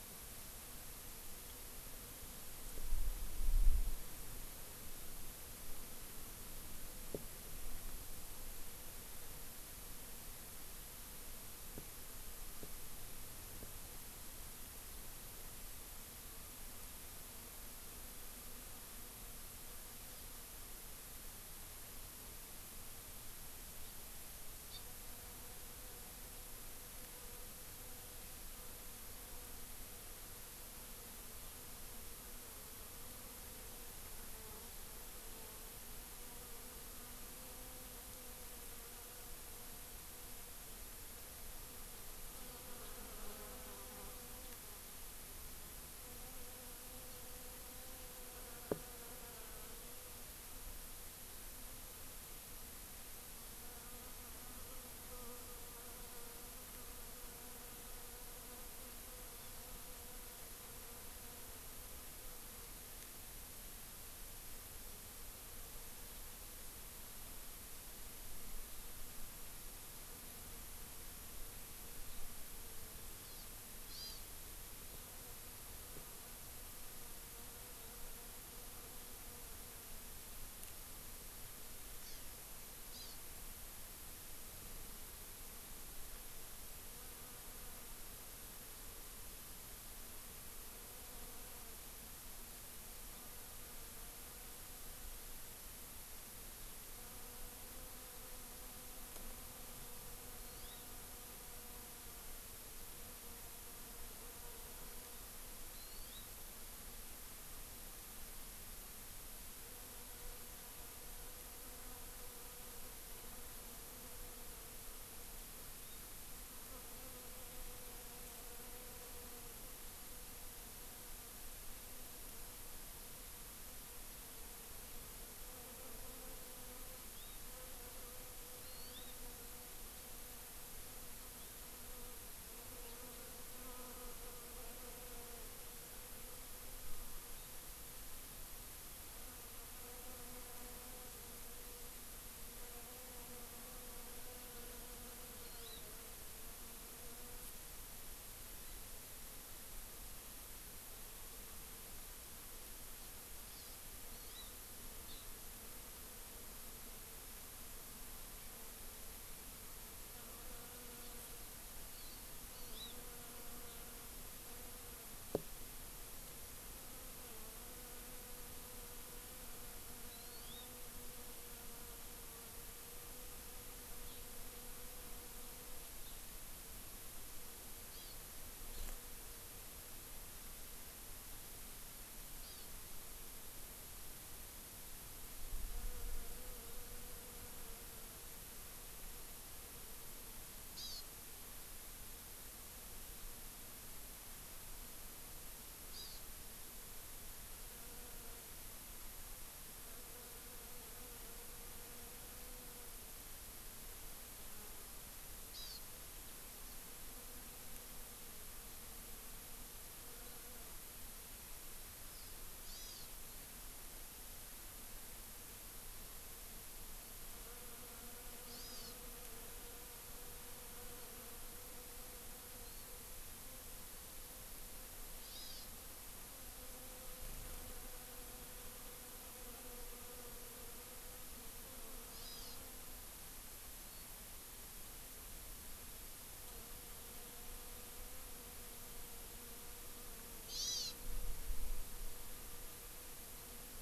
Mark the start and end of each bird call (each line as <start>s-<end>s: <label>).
23.8s-24.0s: Hawaii Amakihi (Chlorodrepanis virens)
24.7s-24.8s: Hawaii Amakihi (Chlorodrepanis virens)
42.3s-42.7s: Hawaii Amakihi (Chlorodrepanis virens)
59.3s-59.6s: Hawaii Amakihi (Chlorodrepanis virens)
73.2s-73.5s: Hawaii Amakihi (Chlorodrepanis virens)
73.9s-74.2s: Hawaii Amakihi (Chlorodrepanis virens)
82.0s-82.3s: Hawaii Amakihi (Chlorodrepanis virens)
82.9s-83.2s: Hawaii Amakihi (Chlorodrepanis virens)
100.4s-100.9s: Hawaii Amakihi (Chlorodrepanis virens)
105.7s-106.2s: Hawaii Amakihi (Chlorodrepanis virens)
115.8s-116.0s: Hawaii Amakihi (Chlorodrepanis virens)
127.1s-127.4s: Hawaii Amakihi (Chlorodrepanis virens)
128.6s-129.1s: Hawaii Amakihi (Chlorodrepanis virens)
131.4s-131.6s: Hawaii Amakihi (Chlorodrepanis virens)
144.0s-144.6s: Hawaii Amakihi (Chlorodrepanis virens)
145.4s-145.8s: Hawaii Amakihi (Chlorodrepanis virens)
153.4s-153.8s: Hawaii Amakihi (Chlorodrepanis virens)
154.1s-154.5s: Hawaii Amakihi (Chlorodrepanis virens)
161.0s-161.3s: Hawaii Amakihi (Chlorodrepanis virens)
161.9s-163.0s: Hawaii Amakihi (Chlorodrepanis virens)
170.1s-170.7s: Hawaii Amakihi (Chlorodrepanis virens)
174.0s-174.3s: Hawaii Amakihi (Chlorodrepanis virens)
176.0s-176.2s: Hawaii Amakihi (Chlorodrepanis virens)
177.9s-178.1s: Hawaii Amakihi (Chlorodrepanis virens)
182.4s-182.7s: Hawaii Amakihi (Chlorodrepanis virens)
190.7s-191.0s: Hawaii Amakihi (Chlorodrepanis virens)
195.9s-196.2s: Hawaii Amakihi (Chlorodrepanis virens)
205.5s-205.8s: Hawaii Amakihi (Chlorodrepanis virens)
212.1s-213.1s: Hawaii Amakihi (Chlorodrepanis virens)
218.5s-219.0s: Hawaii Amakihi (Chlorodrepanis virens)
222.5s-222.9s: Hawaii Amakihi (Chlorodrepanis virens)
225.2s-225.7s: Hawaii Amakihi (Chlorodrepanis virens)
232.1s-232.6s: Hawaii Amakihi (Chlorodrepanis virens)
233.8s-234.1s: Hawaii Amakihi (Chlorodrepanis virens)
240.4s-241.0s: Hawaii Amakihi (Chlorodrepanis virens)